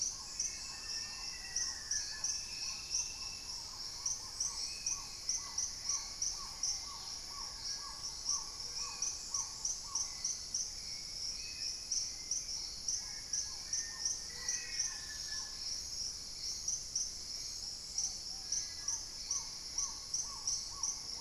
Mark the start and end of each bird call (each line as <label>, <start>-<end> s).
Black-tailed Trogon (Trogon melanurus), 0.0-21.2 s
Hauxwell's Thrush (Turdus hauxwelli), 0.0-21.2 s
unidentified bird, 0.2-2.5 s
Black-faced Antthrush (Formicarius analis), 0.6-2.5 s
Spot-winged Antshrike (Pygiptila stellaris), 4.5-14.9 s
Dusky-capped Greenlet (Pachysylvia hypoxantha), 6.7-7.5 s
Little Tinamou (Crypturellus soui), 7.3-8.4 s
Gray-fronted Dove (Leptotila rufaxilla), 8.2-9.3 s
Black-faced Antthrush (Formicarius analis), 13.2-15.8 s
Gray-fronted Dove (Leptotila rufaxilla), 13.9-15.1 s
Dusky-capped Greenlet (Pachysylvia hypoxantha), 14.6-15.6 s
Ruddy Pigeon (Patagioenas subvinacea), 17.6-18.6 s
Little Tinamou (Crypturellus soui), 18.4-19.4 s